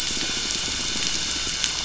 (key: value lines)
label: anthrophony, boat engine
recorder: SoundTrap 500

label: biophony
recorder: SoundTrap 500